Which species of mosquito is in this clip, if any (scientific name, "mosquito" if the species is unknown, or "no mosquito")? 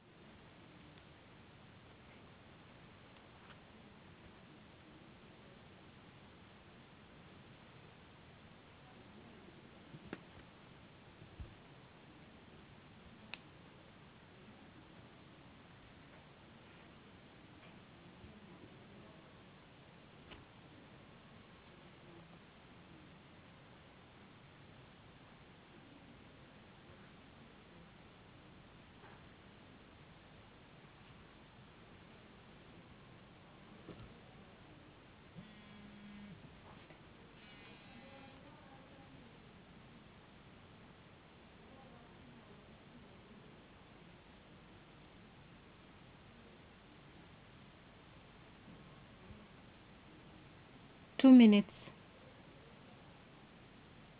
no mosquito